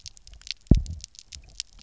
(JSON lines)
{"label": "biophony, double pulse", "recorder": "SoundTrap 300"}